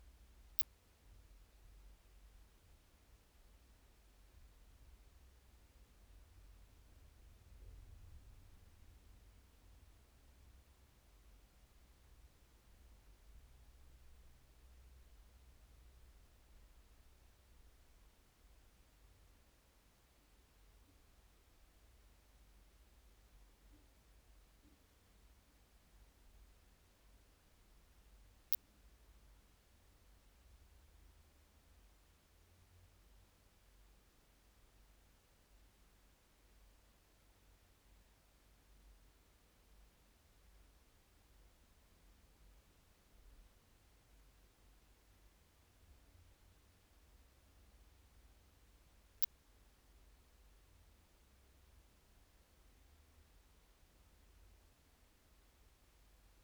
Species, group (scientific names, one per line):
Poecilimon thoracicus
Orthoptera